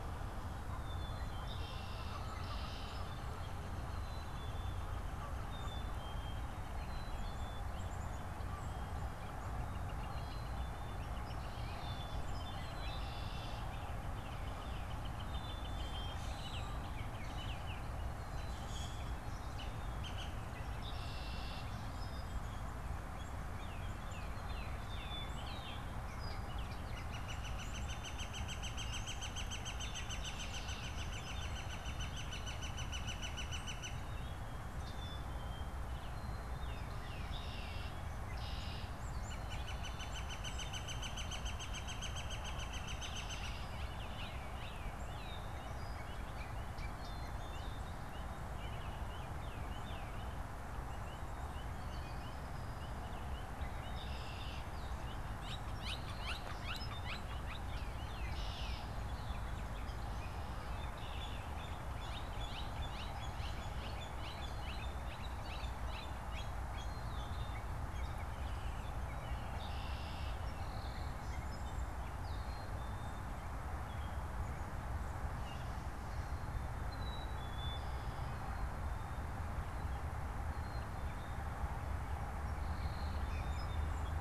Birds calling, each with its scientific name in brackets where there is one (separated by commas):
Black-capped Chickadee (Poecile atricapillus), Gray Catbird (Dumetella carolinensis), White-breasted Nuthatch (Sitta carolinensis), Red-winged Blackbird (Agelaius phoeniceus), Canada Goose (Branta canadensis), Song Sparrow (Melospiza melodia), Common Grackle (Quiscalus quiscula), Tufted Titmouse (Baeolophus bicolor), Baltimore Oriole (Icterus galbula), Northern Flicker (Colaptes auratus)